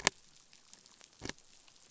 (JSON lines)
{"label": "biophony", "recorder": "SoundTrap 500"}